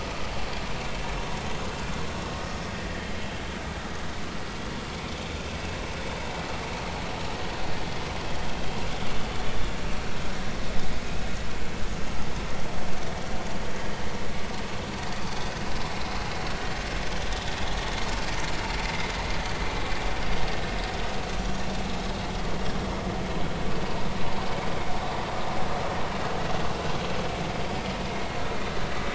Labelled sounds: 18.8	19.1	vessel noise, 1.9 to 2.2 kHz
28.1	28.4	vessel noise, 2.0 to 2.2 kHz

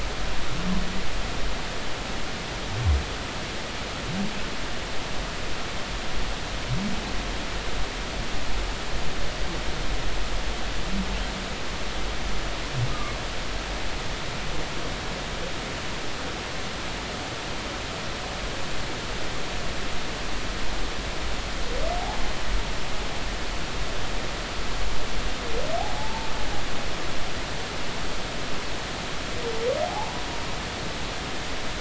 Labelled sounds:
26.0	26.3	humpback whale, 0.80 to 0.96 kHz
29.8	30.2	humpback whale, 0.80 to 1.0 kHz

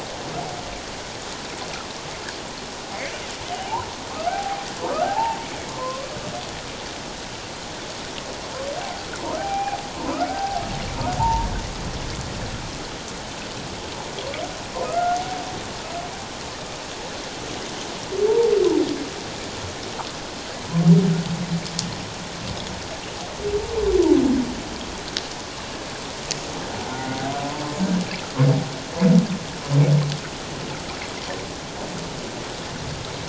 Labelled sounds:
3.5	3.9	humpback whale, 0.78 to 1.1 kHz
4.3	5.4	humpback whale, 0.78 to 1.8 kHz
5.7	6.2	humpback whale, 0.97 to 1.2 kHz
8.8	9.8	humpback whale, 0.78 to 2.5 kHz
10.3	11.5	humpback whale, 0.78 to 1.6 kHz
14.8	15.2	humpback whale, 1.2 to 1.5 kHz
18.3	18.5	humpback whale, 0.78 to 1.0 kHz
26.9	27.2	humpback whale, 1.4 to 1.5 kHz

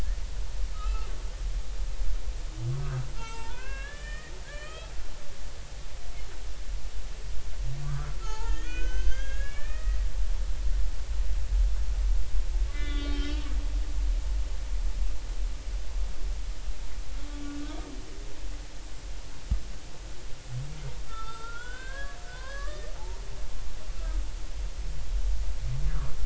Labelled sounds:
0.7	1.1	humpback whale, 1.2 to 1.4 kHz
3.2	4.9	humpback whale, 0.86 to 4.5 kHz
7.8	10.0	humpback whale, 0.80 to 6.6 kHz
12.7	13.5	humpback whale, 1.1 to 3.8 kHz
21.1	22.9	humpback whale, 0.93 to 3.7 kHz

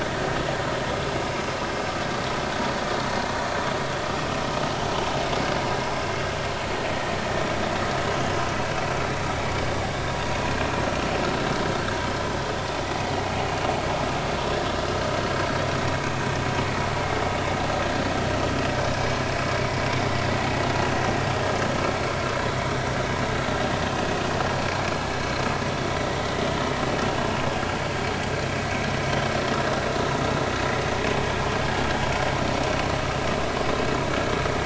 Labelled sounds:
26.0	26.3	vessel noise, 1.9 to 2.1 kHz

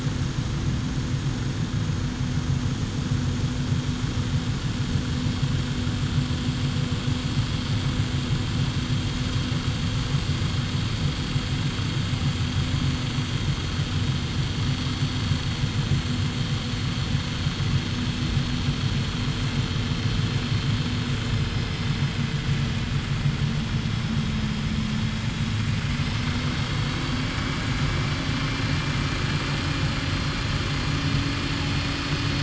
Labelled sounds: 21.2	21.8	vessel noise, 5.0 to 5.2 kHz

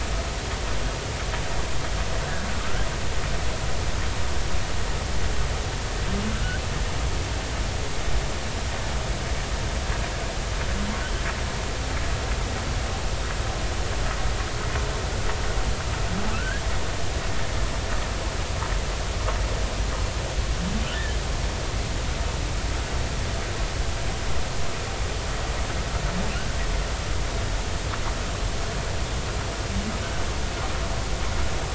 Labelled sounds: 2.2	2.9	humpback whale, 1.2 to 1.8 kHz
16.3	16.6	humpback whale, 1.2 to 1.8 kHz

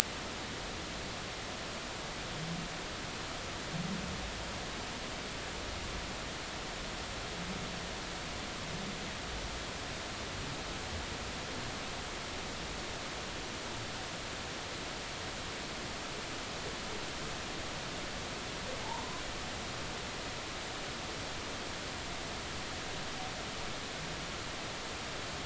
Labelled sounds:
18.8	19.2	humpback whale, 0.83 to 1.1 kHz

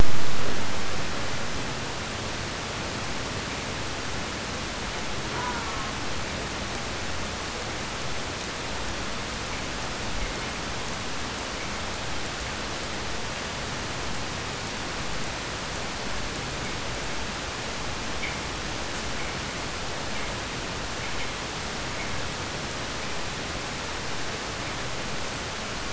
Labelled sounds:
5.3	6.0	killer whale, southern resident, 0.45 to 2.6 kHz

